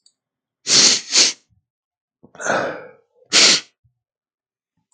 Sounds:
Sniff